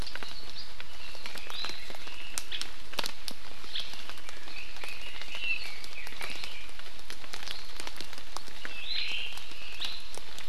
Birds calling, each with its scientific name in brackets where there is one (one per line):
Omao (Myadestes obscurus)
Red-billed Leiothrix (Leiothrix lutea)
Iiwi (Drepanis coccinea)